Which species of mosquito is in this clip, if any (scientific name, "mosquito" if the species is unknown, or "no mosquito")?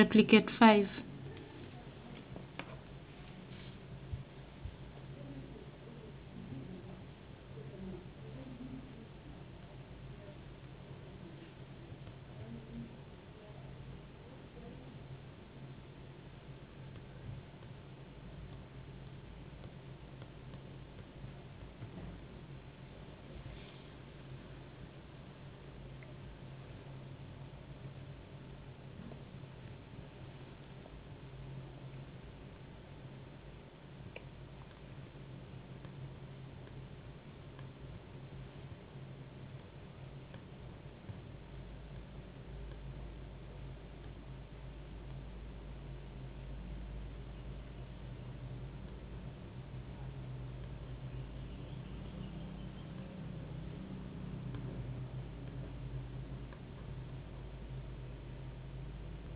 no mosquito